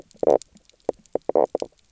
{"label": "biophony, knock croak", "recorder": "SoundTrap 300"}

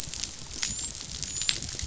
{"label": "biophony, dolphin", "recorder": "SoundTrap 500"}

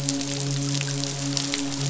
{"label": "biophony, midshipman", "recorder": "SoundTrap 500"}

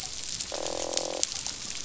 {"label": "biophony, croak", "recorder": "SoundTrap 500"}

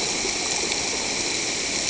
{"label": "ambient", "recorder": "HydroMoth"}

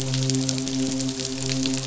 {"label": "biophony, midshipman", "recorder": "SoundTrap 500"}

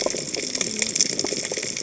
{"label": "biophony, cascading saw", "recorder": "HydroMoth"}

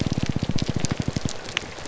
{"label": "biophony, grouper groan", "recorder": "SoundTrap 300"}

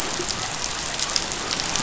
{"label": "biophony", "recorder": "SoundTrap 500"}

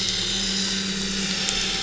{"label": "anthrophony, boat engine", "recorder": "SoundTrap 500"}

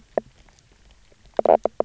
{"label": "biophony, knock croak", "recorder": "SoundTrap 300"}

